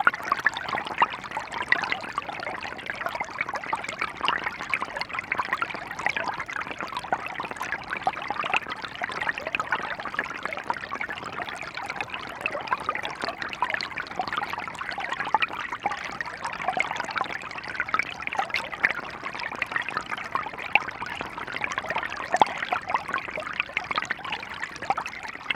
What direction is the water moving?
down